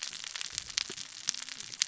{"label": "biophony, cascading saw", "recorder": "SoundTrap 600 or HydroMoth"}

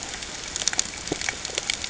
{"label": "ambient", "recorder": "HydroMoth"}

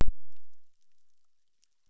{"label": "biophony, chorus", "recorder": "SoundTrap 600"}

